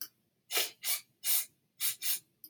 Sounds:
Sniff